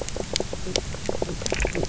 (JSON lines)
{"label": "biophony, knock croak", "recorder": "SoundTrap 300"}